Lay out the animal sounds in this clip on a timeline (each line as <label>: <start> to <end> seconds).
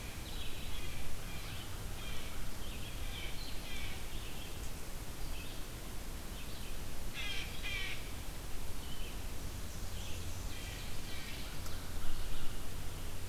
Red-eyed Vireo (Vireo olivaceus): 0.0 to 13.3 seconds
Blue Jay (Cyanocitta cristata): 0.7 to 4.0 seconds
Blue Jay (Cyanocitta cristata): 7.1 to 8.0 seconds
Blackburnian Warbler (Setophaga fusca): 9.3 to 10.9 seconds
Blue Jay (Cyanocitta cristata): 10.5 to 11.5 seconds